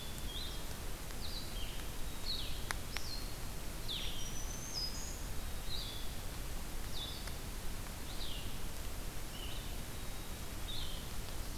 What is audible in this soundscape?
Blue-headed Vireo, Black-capped Chickadee, Black-throated Green Warbler